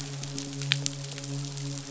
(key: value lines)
label: biophony, midshipman
recorder: SoundTrap 500